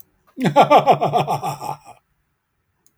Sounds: Laughter